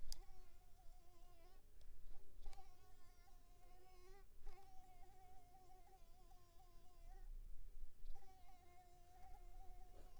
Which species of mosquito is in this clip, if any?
Anopheles arabiensis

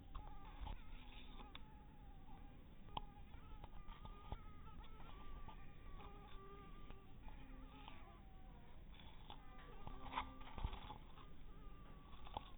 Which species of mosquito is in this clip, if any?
mosquito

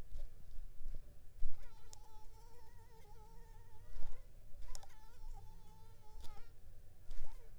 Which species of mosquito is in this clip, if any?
mosquito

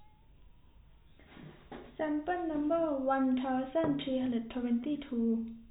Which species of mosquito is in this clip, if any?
no mosquito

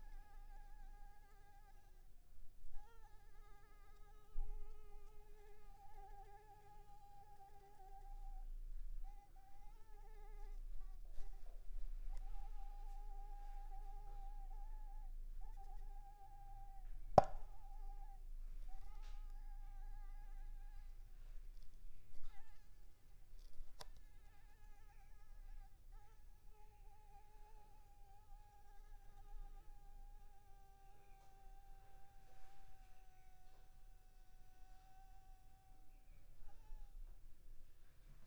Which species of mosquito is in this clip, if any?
Anopheles squamosus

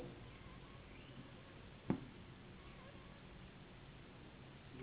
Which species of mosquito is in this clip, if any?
Anopheles gambiae s.s.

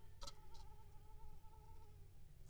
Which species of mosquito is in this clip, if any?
Culex pipiens complex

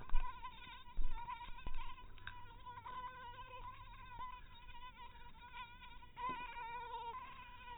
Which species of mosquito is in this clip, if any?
mosquito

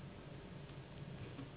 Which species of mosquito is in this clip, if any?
Anopheles gambiae s.s.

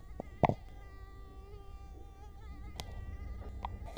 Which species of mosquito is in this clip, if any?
Culex quinquefasciatus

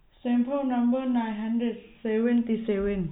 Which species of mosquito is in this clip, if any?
no mosquito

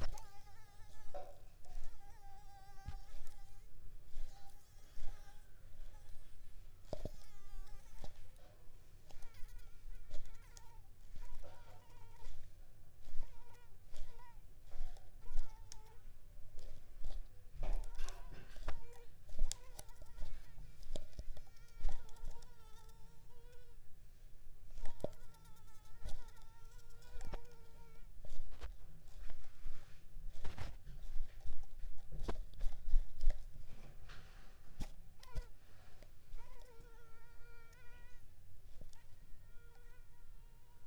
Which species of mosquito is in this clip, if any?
Anopheles pharoensis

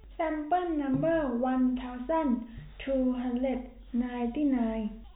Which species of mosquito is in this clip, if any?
no mosquito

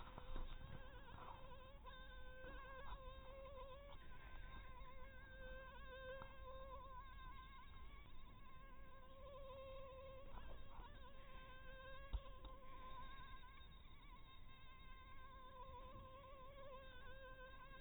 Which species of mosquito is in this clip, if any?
mosquito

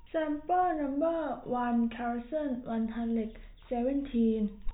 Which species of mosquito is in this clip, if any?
no mosquito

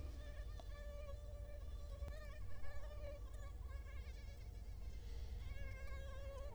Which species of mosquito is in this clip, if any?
Culex quinquefasciatus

